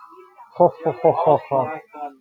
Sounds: Laughter